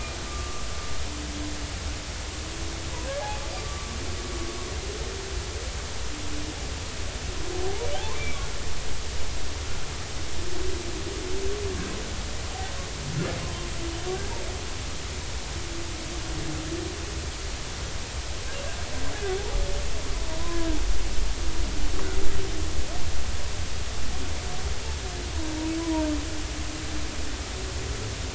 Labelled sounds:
3.6	3.9	humpback whale, 1.1 to 1.2 kHz
7.6	8.4	humpback whale, 0.80 to 2.4 kHz
20.4	20.7	humpback whale, 0.96 to 1.1 kHz
25.8	26.1	humpback whale, 0.90 to 1.1 kHz

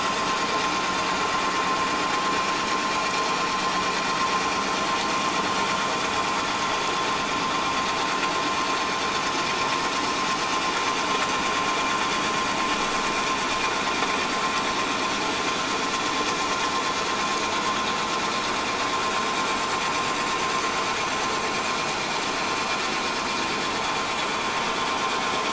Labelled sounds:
1.0	1.3	vessel noise, 7.0 to 7.2 kHz

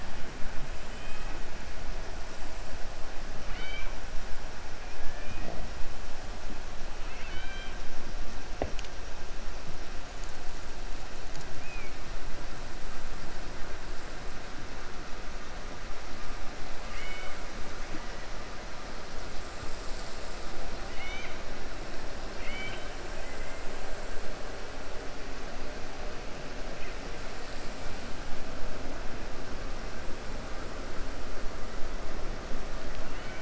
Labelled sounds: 0.9	1.4	killer whale, 1.3 to 3.2 kHz
3.4	3.9	killer whale, 1.2 to 4.6 kHz
7.0	7.8	killer whale, 1.3 to 4.6 kHz
16.8	17.4	killer whale, 1.2 to 3.7 kHz
20.8	21.4	killer whale, 1.5 to 4.3 kHz
22.3	22.9	killer whale, 1.5 to 3.9 kHz

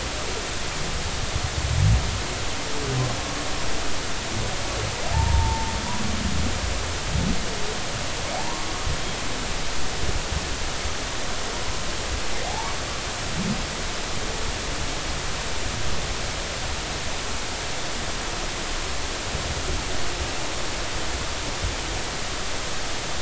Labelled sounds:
5.1	5.7	humpback whale, 0.80 to 0.99 kHz
9.3	9.7	humpback whale, 0.80 to 1.1 kHz
12.4	12.7	humpback whale, 0.80 to 0.99 kHz

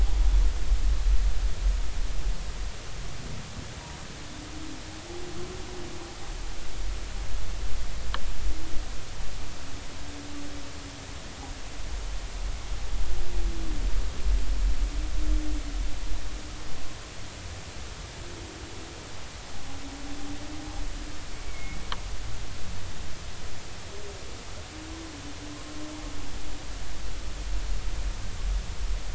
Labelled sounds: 21.3	21.8	humpback whale, 2.1 to 2.3 kHz

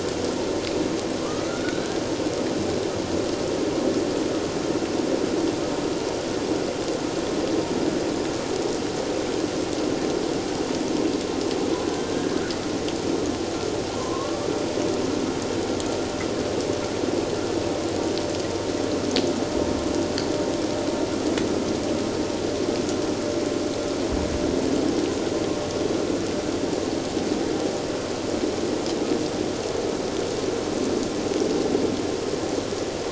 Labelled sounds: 1.2	2.0	killer whale, Bigg's (transient), 1.0 to 4.0 kHz
12.1	12.4	killer whale, Bigg's (transient), 1.5 to 1.7 kHz
14.0	14.5	killer whale, Bigg's (transient), 0.94 to 1.2 kHz

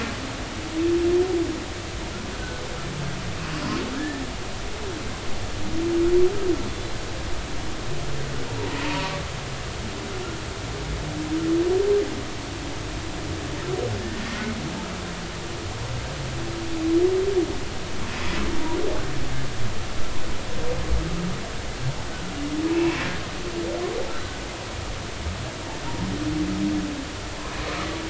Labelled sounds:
4.0	4.2	humpback whale, 1.6 to 1.9 kHz
8.8	9.1	humpback whale, 0.86 to 2.7 kHz
14.3	14.6	humpback whale, 2.0 to 2.2 kHz
22.7	23.0	humpback whale, 2.5 to 2.8 kHz
24.1	24.4	humpback whale, 1.5 to 1.6 kHz

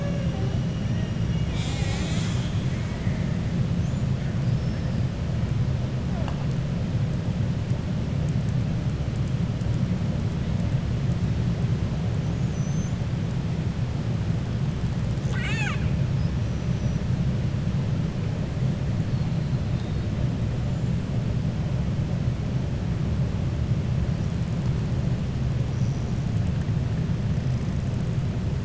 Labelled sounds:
12.2	13.0	killer whale, 5.9 to 7.0 kHz
15.1	15.9	killer whale, 0.86 to 7.9 kHz

